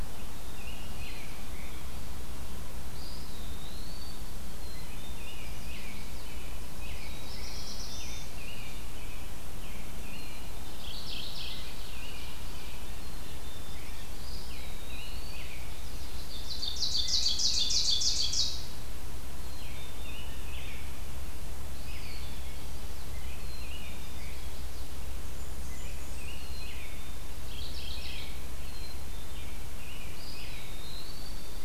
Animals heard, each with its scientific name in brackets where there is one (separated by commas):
Chestnut-sided Warbler (Setophaga pensylvanica), Eastern Wood-Pewee (Contopus virens), Black-throated Blue Warbler (Setophaga caerulescens), American Robin (Turdus migratorius), Ovenbird (Seiurus aurocapilla), Black-capped Chickadee (Poecile atricapillus), Mourning Warbler (Geothlypis philadelphia), Blackburnian Warbler (Setophaga fusca)